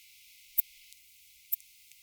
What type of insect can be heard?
orthopteran